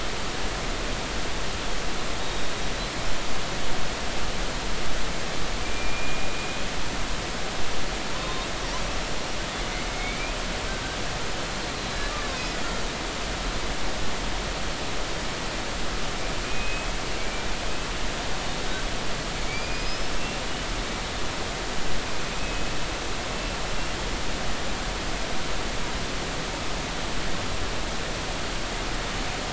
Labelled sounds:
2.2	2.5	killer whale, Bigg's (transient), 3.7 to 3.9 kHz
5.6	6.3	killer whale, Bigg's (transient), 2.3 to 2.5 kHz
8.1	8.5	killer whale, Bigg's (transient), 0.99 to 3.9 kHz
9.9	10.3	killer whale, Bigg's (transient), 2.1 to 2.6 kHz
11.8	12.6	killer whale, Bigg's (transient), 1.9 to 4.2 kHz
16.4	17.5	killer whale, Bigg's (transient), 2.2 to 2.6 kHz
19.4	20.4	killer whale, Bigg's (transient), 2.2 to 5.3 kHz
22.4	22.7	killer whale, Bigg's (transient), 2.5 to 2.6 kHz
23.3	23.6	killer whale, Bigg's (transient), 2.6 to 2.7 kHz

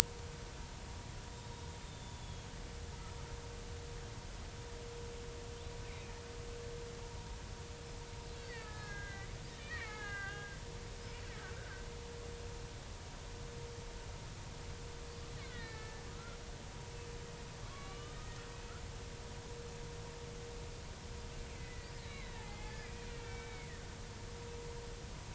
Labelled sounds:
1.3	2.5	killer whale, Bigg's (transient), 3.2 to 3.8 kHz
8.4	9.3	killer whale, Bigg's (transient), 1.2 to 4.7 kHz
9.6	11.8	killer whale, Bigg's (transient), 0.80 to 3.0 kHz
15.4	16.4	killer whale, Bigg's (transient), 1.2 to 4.5 kHz
17.7	18.2	killer whale, Bigg's (transient), 1.0 to 3.1 kHz
21.5	23.7	killer whale, Bigg's (transient), 0.80 to 4.1 kHz

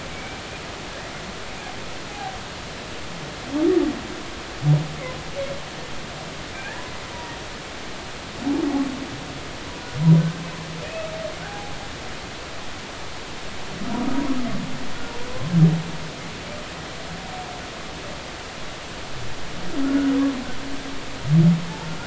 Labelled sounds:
0.1	0.4	humpback whale, 2.1 to 2.4 kHz
2.1	2.4	humpback whale, 0.80 to 0.86 kHz
6.6	6.8	humpback whale, 1.5 to 2.0 kHz
10.2	10.4	humpback whale, 1.5 to 1.6 kHz
11.5	11.7	humpback whale, 0.80 to 0.86 kHz

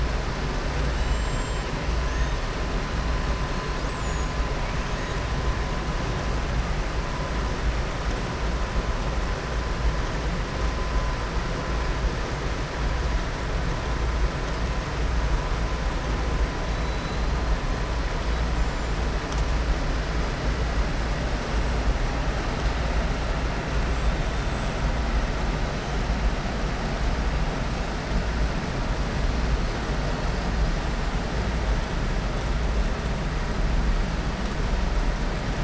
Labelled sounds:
0.9	1.7	killer whale, southern resident, 7.3 to 7.6 kHz
3.8	4.3	killer whale, southern resident, 6.7 to 7.8 kHz

